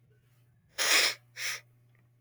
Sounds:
Sniff